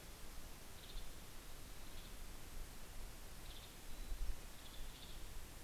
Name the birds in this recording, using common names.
Western Tanager, Mountain Chickadee